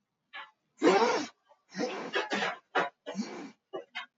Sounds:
Sniff